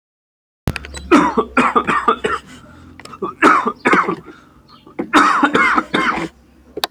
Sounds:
Cough